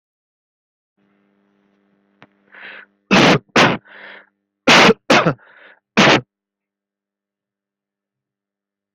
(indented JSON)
{
  "expert_labels": [
    {
      "quality": "poor",
      "cough_type": "unknown",
      "dyspnea": false,
      "wheezing": false,
      "stridor": false,
      "choking": false,
      "congestion": false,
      "nothing": true,
      "diagnosis": "lower respiratory tract infection",
      "severity": "unknown"
    }
  ],
  "age": 30,
  "gender": "male",
  "respiratory_condition": false,
  "fever_muscle_pain": false,
  "status": "COVID-19"
}